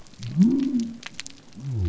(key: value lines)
label: biophony
recorder: SoundTrap 300